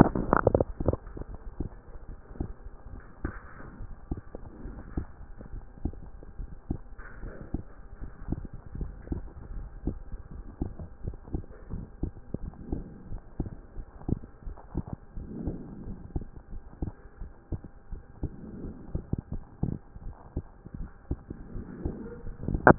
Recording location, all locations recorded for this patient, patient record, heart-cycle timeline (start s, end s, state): pulmonary valve (PV)
pulmonary valve (PV)+tricuspid valve (TV)+mitral valve (MV)
#Age: Child
#Sex: Male
#Height: 149.0 cm
#Weight: 36.1 kg
#Pregnancy status: False
#Murmur: Absent
#Murmur locations: nan
#Most audible location: nan
#Systolic murmur timing: nan
#Systolic murmur shape: nan
#Systolic murmur grading: nan
#Systolic murmur pitch: nan
#Systolic murmur quality: nan
#Diastolic murmur timing: nan
#Diastolic murmur shape: nan
#Diastolic murmur grading: nan
#Diastolic murmur pitch: nan
#Diastolic murmur quality: nan
#Outcome: Abnormal
#Campaign: 2014 screening campaign
0.16	0.44	diastole
0.44	0.62	S1
0.62	0.84	systole
0.84	1.00	S2
1.00	1.28	diastole
1.28	1.38	S1
1.38	1.56	systole
1.56	1.72	S2
1.72	2.08	diastole
2.08	2.18	S1
2.18	2.38	systole
2.38	2.54	S2
2.54	2.90	diastole
2.90	3.02	S1
3.02	3.22	systole
3.22	3.36	S2
3.36	3.72	diastole
3.72	3.88	S1
3.88	4.08	systole
4.08	4.22	S2
4.22	4.60	diastole
4.60	4.74	S1
4.74	4.92	systole
4.92	5.08	S2
5.08	5.46	diastole
5.46	5.62	S1
5.62	5.82	systole
5.82	5.98	S2
5.98	6.36	diastole
6.36	6.48	S1
6.48	6.66	systole
6.66	6.82	S2
6.82	7.18	diastole
7.18	7.32	S1
7.32	7.50	systole
7.50	7.66	S2
7.66	8.00	diastole
8.00	8.10	S1
8.10	8.30	systole
8.30	8.46	S2
8.46	8.74	diastole
8.74	8.92	S1
8.92	9.10	systole
9.10	9.24	S2
9.24	9.52	diastole
9.52	9.70	S1
9.70	9.84	systole
9.84	9.98	S2
9.98	10.32	diastole
10.32	10.46	S1
10.46	10.62	systole
10.62	10.76	S2
10.76	11.04	diastole
11.04	11.16	S1
11.16	11.32	systole
11.32	11.44	S2
11.44	11.70	diastole
11.70	11.84	S1
11.84	12.00	systole
12.00	12.14	S2
12.14	12.42	diastole
12.42	12.54	S1
12.54	12.70	systole
12.70	12.84	S2
12.84	13.10	diastole
13.10	13.22	S1
13.22	13.36	systole
13.36	13.50	S2
13.50	13.76	diastole
13.76	13.86	S1
13.86	14.04	systole
14.04	14.20	S2
14.20	14.46	diastole
14.46	14.58	S1
14.58	14.76	systole
14.76	14.86	S2
14.86	15.16	diastole
15.16	15.28	S1
15.28	15.46	systole
15.46	15.60	S2
15.60	15.86	diastole
15.86	15.98	S1
15.98	16.14	systole
16.14	16.28	S2
16.28	16.52	diastole
16.52	16.62	S1
16.62	16.78	systole
16.78	16.94	S2
16.94	17.20	diastole
17.20	17.32	S1
17.32	17.52	systole
17.52	17.62	S2
17.62	17.92	diastole
17.92	18.04	S1
18.04	18.22	systole
18.22	18.32	S2
18.32	18.58	diastole
18.58	18.74	S1
18.74	18.90	systole
18.90	19.02	S2
19.02	19.32	diastole
19.32	19.44	S1
19.44	19.64	systole
19.64	19.80	S2
19.80	20.06	diastole
20.06	20.14	S1
20.14	20.32	systole
20.32	20.44	S2
20.44	20.74	diastole
20.74	20.88	S1
20.88	21.06	systole
21.06	21.20	S2
21.20	21.52	diastole
21.52	21.70	S1
21.70	21.96	systole
21.96	22.10	S2
22.10	22.44	diastole
22.44	22.62	S1
22.62	22.68	systole
22.68	22.78	S2